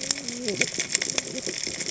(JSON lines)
{"label": "biophony, cascading saw", "recorder": "HydroMoth"}